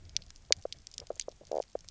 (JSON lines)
{"label": "biophony, knock croak", "recorder": "SoundTrap 300"}